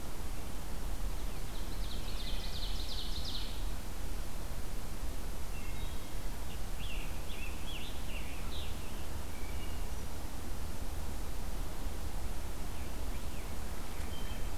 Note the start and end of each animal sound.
1.4s-3.6s: Ovenbird (Seiurus aurocapilla)
2.0s-2.7s: Wood Thrush (Hylocichla mustelina)
5.4s-6.3s: Wood Thrush (Hylocichla mustelina)
6.4s-9.2s: Scarlet Tanager (Piranga olivacea)
9.2s-9.9s: Wood Thrush (Hylocichla mustelina)
12.5s-14.6s: American Robin (Turdus migratorius)

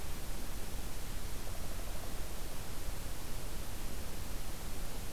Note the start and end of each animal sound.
1.2s-2.1s: Downy Woodpecker (Dryobates pubescens)

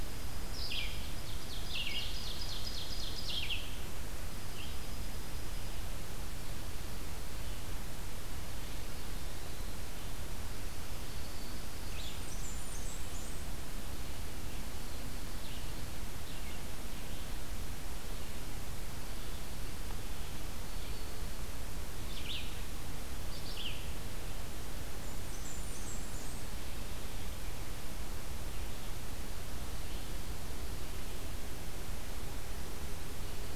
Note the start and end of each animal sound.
0.0s-1.3s: Dark-eyed Junco (Junco hyemalis)
0.0s-3.6s: Red-eyed Vireo (Vireo olivaceus)
0.9s-3.4s: Ovenbird (Seiurus aurocapilla)
4.1s-5.9s: Dark-eyed Junco (Junco hyemalis)
10.7s-12.1s: Dark-eyed Junco (Junco hyemalis)
11.6s-21.2s: Red-eyed Vireo (Vireo olivaceus)
11.7s-13.6s: Blackburnian Warbler (Setophaga fusca)
21.8s-23.9s: Red-eyed Vireo (Vireo olivaceus)
25.0s-26.6s: Blackburnian Warbler (Setophaga fusca)

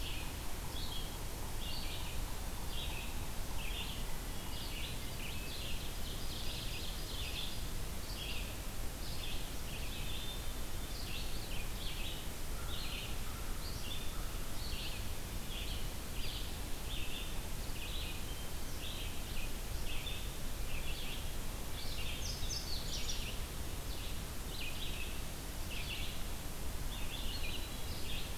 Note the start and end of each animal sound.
0.0s-4.6s: Yellow-bellied Sapsucker (Sphyrapicus varius)
0.0s-28.4s: Red-eyed Vireo (Vireo olivaceus)
5.1s-5.9s: Hermit Thrush (Catharus guttatus)
5.9s-7.6s: Ovenbird (Seiurus aurocapilla)
12.5s-14.6s: American Crow (Corvus brachyrhynchos)
22.2s-23.4s: Indigo Bunting (Passerina cyanea)

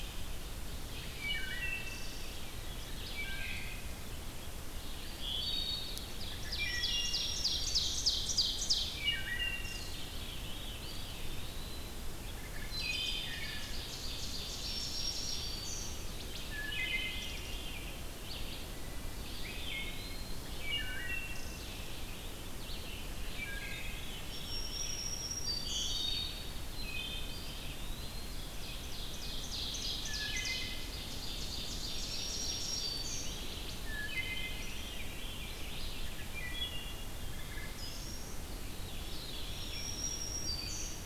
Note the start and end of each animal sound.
0.0s-41.0s: Red-eyed Vireo (Vireo olivaceus)
1.2s-2.4s: Wood Thrush (Hylocichla mustelina)
3.1s-4.0s: Wood Thrush (Hylocichla mustelina)
5.2s-6.1s: Wood Thrush (Hylocichla mustelina)
6.0s-9.1s: Ovenbird (Seiurus aurocapilla)
6.4s-8.7s: Black-throated Green Warbler (Setophaga virens)
6.4s-7.5s: Wood Thrush (Hylocichla mustelina)
8.9s-10.1s: Wood Thrush (Hylocichla mustelina)
9.9s-11.2s: Veery (Catharus fuscescens)
10.7s-12.0s: Eastern Wood-Pewee (Contopus virens)
12.4s-13.7s: Wood Thrush (Hylocichla mustelina)
12.5s-15.9s: Ovenbird (Seiurus aurocapilla)
14.3s-16.0s: Black-throated Green Warbler (Setophaga virens)
16.3s-17.6s: Wood Thrush (Hylocichla mustelina)
19.1s-20.6s: Eastern Wood-Pewee (Contopus virens)
20.4s-21.7s: Wood Thrush (Hylocichla mustelina)
23.2s-24.4s: Wood Thrush (Hylocichla mustelina)
24.3s-26.0s: Black-throated Green Warbler (Setophaga virens)
26.6s-27.5s: Wood Thrush (Hylocichla mustelina)
27.1s-28.5s: Eastern Wood-Pewee (Contopus virens)
28.5s-32.9s: Ovenbird (Seiurus aurocapilla)
29.7s-31.0s: Wood Thrush (Hylocichla mustelina)
31.8s-33.5s: Black-throated Green Warbler (Setophaga virens)
33.7s-34.9s: Wood Thrush (Hylocichla mustelina)
33.9s-35.6s: Veery (Catharus fuscescens)
36.1s-38.3s: Wood Thrush (Hylocichla mustelina)
39.3s-41.1s: Black-throated Green Warbler (Setophaga virens)

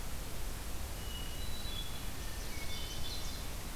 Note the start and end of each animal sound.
0.9s-2.0s: Hermit Thrush (Catharus guttatus)
1.9s-3.4s: Chestnut-sided Warbler (Setophaga pensylvanica)
2.4s-3.5s: Hermit Thrush (Catharus guttatus)
2.8s-3.8s: Red-eyed Vireo (Vireo olivaceus)

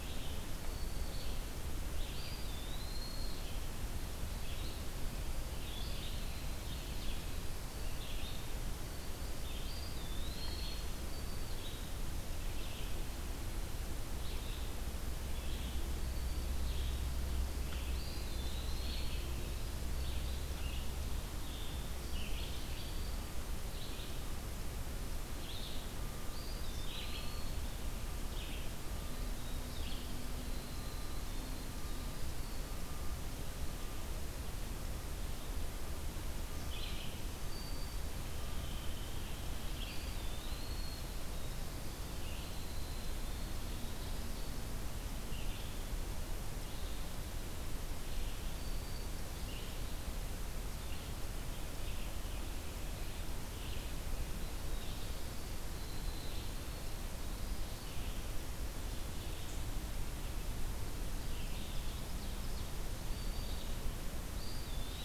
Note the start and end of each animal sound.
0.0s-30.1s: Red-eyed Vireo (Vireo olivaceus)
0.2s-1.3s: Black-throated Green Warbler (Setophaga virens)
1.9s-3.6s: Eastern Wood-Pewee (Contopus virens)
4.0s-11.6s: Winter Wren (Troglodytes hiemalis)
9.5s-11.0s: Eastern Wood-Pewee (Contopus virens)
15.6s-16.7s: Black-throated Green Warbler (Setophaga virens)
17.9s-19.3s: Eastern Wood-Pewee (Contopus virens)
26.2s-27.6s: Eastern Wood-Pewee (Contopus virens)
27.7s-33.5s: Winter Wren (Troglodytes hiemalis)
36.8s-65.0s: Red-eyed Vireo (Vireo olivaceus)
37.2s-38.2s: Black-throated Green Warbler (Setophaga virens)
38.3s-44.7s: Winter Wren (Troglodytes hiemalis)
39.7s-41.1s: Eastern Wood-Pewee (Contopus virens)
48.3s-49.3s: Black-throated Green Warbler (Setophaga virens)
53.7s-59.3s: Winter Wren (Troglodytes hiemalis)
60.9s-62.7s: Ovenbird (Seiurus aurocapilla)
62.9s-63.8s: Black-throated Green Warbler (Setophaga virens)
64.3s-65.0s: Eastern Wood-Pewee (Contopus virens)

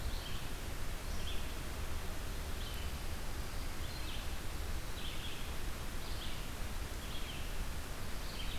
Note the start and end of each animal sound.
0.0s-8.6s: Red-eyed Vireo (Vireo olivaceus)

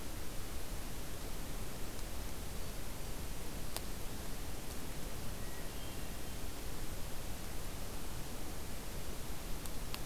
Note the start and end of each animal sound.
5.2s-6.4s: Hermit Thrush (Catharus guttatus)

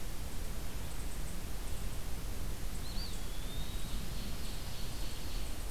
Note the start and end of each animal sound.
2.7s-3.9s: Eastern Wood-Pewee (Contopus virens)
3.5s-5.7s: Ovenbird (Seiurus aurocapilla)

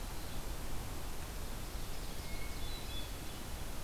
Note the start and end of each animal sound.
1.5s-2.9s: Ovenbird (Seiurus aurocapilla)
2.1s-3.6s: Hermit Thrush (Catharus guttatus)

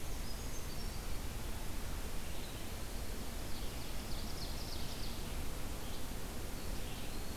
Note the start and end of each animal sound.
0.0s-1.1s: Brown Creeper (Certhia americana)
0.0s-7.4s: Red-eyed Vireo (Vireo olivaceus)
3.4s-5.2s: Ovenbird (Seiurus aurocapilla)

